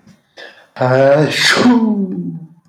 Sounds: Sneeze